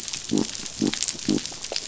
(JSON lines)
{"label": "biophony", "recorder": "SoundTrap 500"}